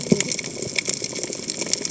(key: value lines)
label: biophony, cascading saw
recorder: HydroMoth